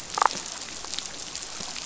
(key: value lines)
label: biophony, damselfish
recorder: SoundTrap 500